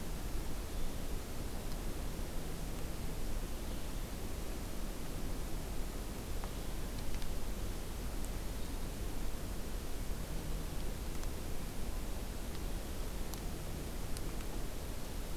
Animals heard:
forest ambience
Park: Acadia National Park